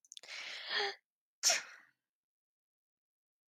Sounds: Sneeze